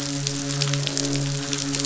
{"label": "biophony, croak", "recorder": "SoundTrap 500"}
{"label": "biophony, midshipman", "recorder": "SoundTrap 500"}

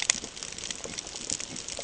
{"label": "ambient", "recorder": "HydroMoth"}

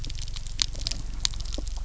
{"label": "anthrophony, boat engine", "recorder": "SoundTrap 300"}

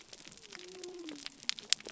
{"label": "biophony", "recorder": "SoundTrap 300"}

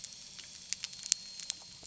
{"label": "anthrophony, boat engine", "recorder": "SoundTrap 300"}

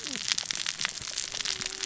{"label": "biophony, cascading saw", "recorder": "SoundTrap 600 or HydroMoth"}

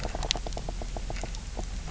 {"label": "biophony, knock croak", "recorder": "SoundTrap 300"}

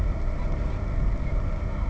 {"label": "ambient", "recorder": "HydroMoth"}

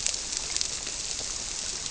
{"label": "biophony", "recorder": "SoundTrap 300"}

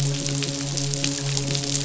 {"label": "biophony, midshipman", "recorder": "SoundTrap 500"}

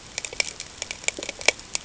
{"label": "ambient", "recorder": "HydroMoth"}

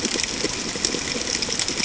{"label": "ambient", "recorder": "HydroMoth"}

